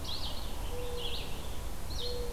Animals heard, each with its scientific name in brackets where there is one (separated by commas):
Mourning Dove (Zenaida macroura), Red-eyed Vireo (Vireo olivaceus), Common Yellowthroat (Geothlypis trichas)